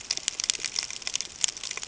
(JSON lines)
{"label": "ambient", "recorder": "HydroMoth"}